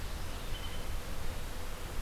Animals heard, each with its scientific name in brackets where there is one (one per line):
Wood Thrush (Hylocichla mustelina)